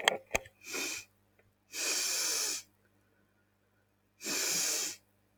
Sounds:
Sniff